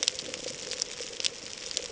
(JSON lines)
{"label": "ambient", "recorder": "HydroMoth"}